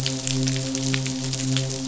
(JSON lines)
{"label": "biophony, midshipman", "recorder": "SoundTrap 500"}